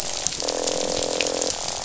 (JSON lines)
{"label": "biophony, croak", "recorder": "SoundTrap 500"}